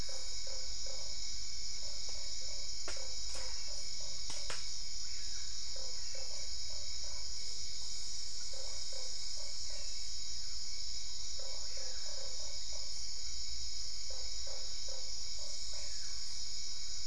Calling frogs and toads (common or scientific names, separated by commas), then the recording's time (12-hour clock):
Usina tree frog, brown-spotted dwarf frog
8:30pm